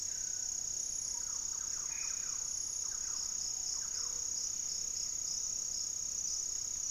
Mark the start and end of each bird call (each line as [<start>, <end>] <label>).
[0.84, 4.44] Thrush-like Wren (Campylorhynchus turdinus)
[1.64, 2.44] Black-faced Antthrush (Formicarius analis)
[3.64, 4.54] Gray-fronted Dove (Leptotila rufaxilla)
[4.34, 6.90] Great Antshrike (Taraba major)